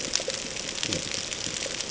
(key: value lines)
label: ambient
recorder: HydroMoth